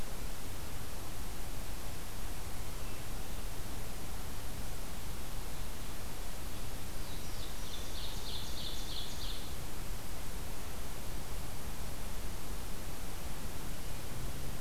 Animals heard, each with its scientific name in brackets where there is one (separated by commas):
Ovenbird (Seiurus aurocapilla), Black-throated Blue Warbler (Setophaga caerulescens)